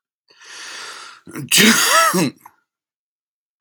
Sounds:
Sneeze